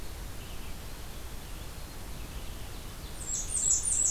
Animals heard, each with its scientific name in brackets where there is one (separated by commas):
Blackburnian Warbler (Setophaga fusca), Ovenbird (Seiurus aurocapilla), Red-eyed Vireo (Vireo olivaceus)